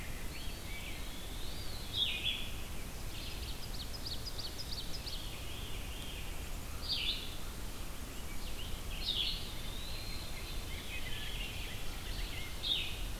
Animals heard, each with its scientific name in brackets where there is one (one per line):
Eastern Wood-Pewee (Contopus virens)
Red-eyed Vireo (Vireo olivaceus)
Rose-breasted Grosbeak (Pheucticus ludovicianus)
Ovenbird (Seiurus aurocapilla)
Veery (Catharus fuscescens)